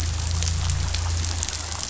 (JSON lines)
{"label": "anthrophony, boat engine", "recorder": "SoundTrap 500"}